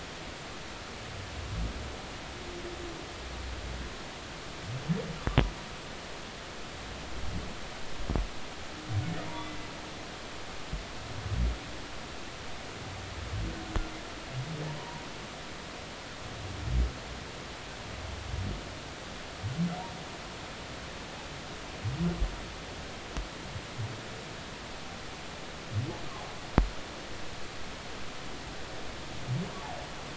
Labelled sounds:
9.3	9.6	humpback whale, 2.0 to 2.1 kHz
14.8	15.0	humpback whale, 0.90 to 1.1 kHz

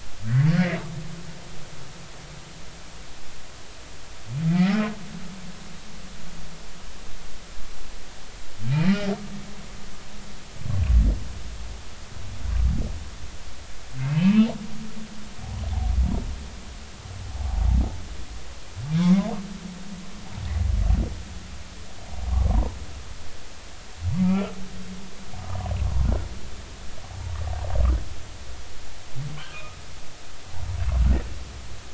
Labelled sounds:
0.2	0.5	humpback whale, 1.4 to 2.1 kHz
4.5	4.8	humpback whale, 1.8 to 2.2 kHz
14.1	14.5	humpback whale, 2.5 to 2.7 kHz
24.2	24.5	humpback whale, 1.2 to 1.4 kHz
29.5	29.8	humpback whale, 1.2 to 1.3 kHz

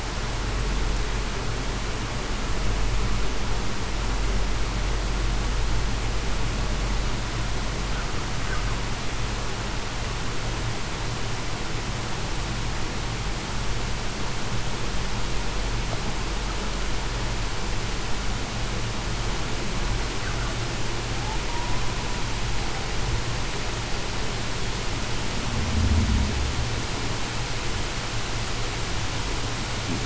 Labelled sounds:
21.5	21.8	humpback whale, 0.91 to 1.0 kHz

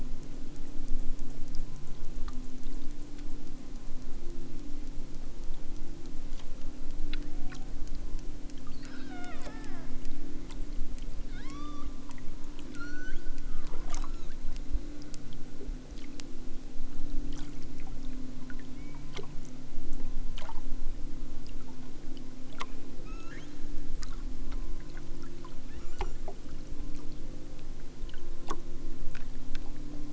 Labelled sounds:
8.7	10.0	killer whale, southern Alaska resident, 0.41 to 5.5 kHz
11.3	11.9	killer whale, southern Alaska resident, 0.64 to 6.1 kHz
12.7	13.2	killer whale, southern Alaska resident, 1.1 to 6.9 kHz
14.0	14.4	killer whale, southern Alaska resident, 1.0 to 7.0 kHz
18.7	19.1	killer whale, southern Alaska resident, 1.5 to 3.3 kHz
23.0	23.5	killer whale, southern Alaska resident, 0.96 to 7.3 kHz
25.6	26.3	killer whale, southern Alaska resident, 0.69 to 7.5 kHz

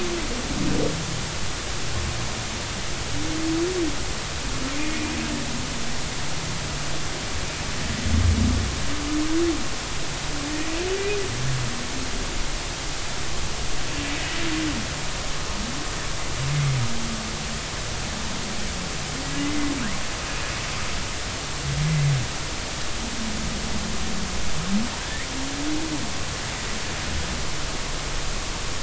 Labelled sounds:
10.5	10.8	humpback whale, 1.8 to 2.0 kHz
19.4	19.7	humpback whale, 2.0 to 2.1 kHz
25.0	25.3	humpback whale, 1.5 to 2.4 kHz

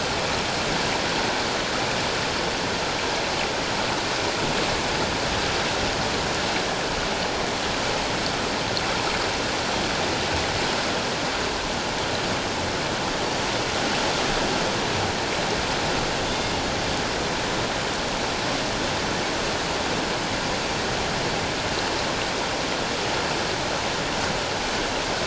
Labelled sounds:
16.3	16.5	killer whale, northern resident, G clan, 3.4 to 3.6 kHz

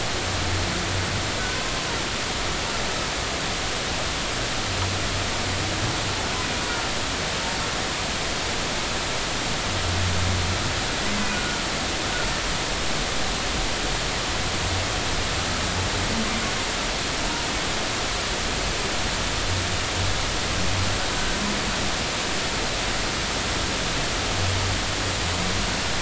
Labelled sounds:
11.3	11.6	humpback whale, 1.4 to 1.5 kHz

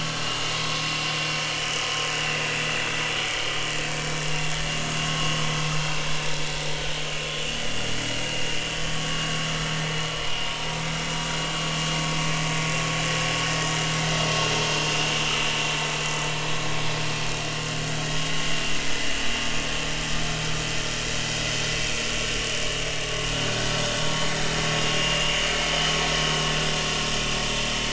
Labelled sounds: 0.0	0.3	vessel noise, 1.5 to 1.6 kHz
3.2	3.6	vessel noise, 2.9 to 3.3 kHz
5.0	5.3	vessel noise, 1.0 to 1.1 kHz
8.6	9.5	vessel noise, 1.1 to 3.1 kHz
14.5	14.8	vessel noise, 6.3 to 6.5 kHz
22.5	23.6	vessel noise, 2.8 to 6.7 kHz
24.8	25.4	vessel noise, 2.7 to 2.9 kHz
26.1	26.4	vessel noise, 6.5 to 6.6 kHz

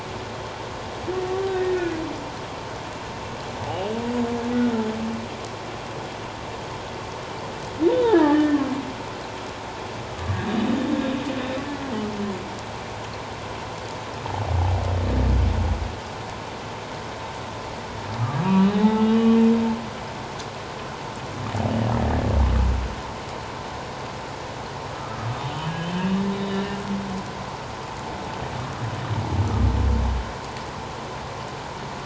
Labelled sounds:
1.5	2.0	humpback whale, 1.6 to 1.9 kHz
8.0	8.7	humpback whale, 1.1 to 2.0 kHz
10.2	10.4	humpback whale, 1.1 to 1.3 kHz
18.4	19.4	humpback whale, 0.81 to 3.8 kHz
24.9	26.8	humpback whale, 1.2 to 3.8 kHz

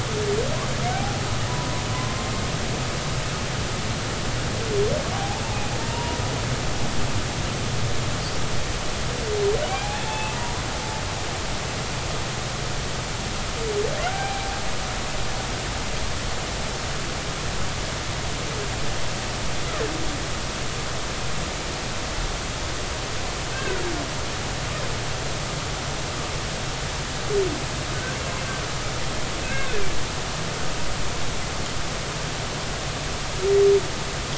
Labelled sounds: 0.9	1.2	humpback whale, 0.80 to 0.86 kHz
1.5	2.3	humpback whale, 0.93 to 1.1 kHz
5.1	5.4	humpback whale, 0.80 to 0.93 kHz
5.8	6.2	humpback whale, 0.90 to 0.99 kHz
10.0	10.4	humpback whale, 0.83 to 3.5 kHz
14.1	14.5	humpback whale, 0.80 to 2.4 kHz
23.5	23.8	humpback whale, 1.4 to 1.8 kHz
29.4	29.8	humpback whale, 1.4 to 2.8 kHz

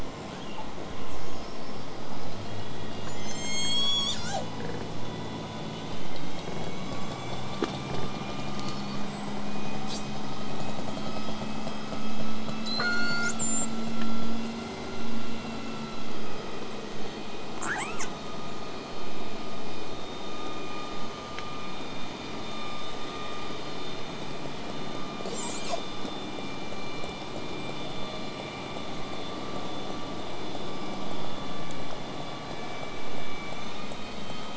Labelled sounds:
0.0	2.5	killer whale, southern resident, 1.1 to 8.0 kHz
3.0	4.5	killer whale, southern resident, call S01, 0.35 to 8.0 kHz
12.6	13.7	killer whale, southern resident, call S42, 1.1 to 8.0 kHz
16.1	16.7	killer whale, southern resident, 4.6 to 8.0 kHz
18.9	23.9	vessel noise, 0 to 8.0 kHz
25.2	25.8	killer whale, southern resident, L pod, call S33, 0.42 to 8.0 kHz

